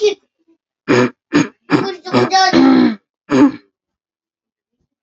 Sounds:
Throat clearing